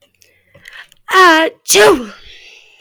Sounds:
Sneeze